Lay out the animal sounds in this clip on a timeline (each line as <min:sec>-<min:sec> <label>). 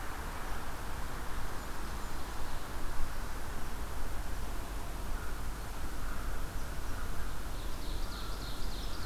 0:00.0-0:09.1 unknown mammal
0:07.2-0:09.1 Ovenbird (Seiurus aurocapilla)